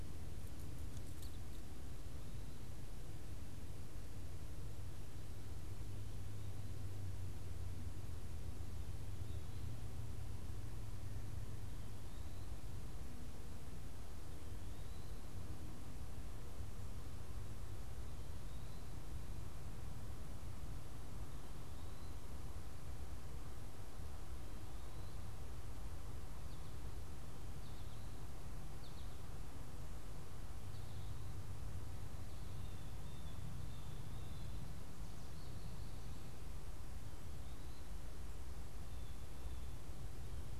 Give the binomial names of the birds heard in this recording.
unidentified bird, Spinus tristis, Cyanocitta cristata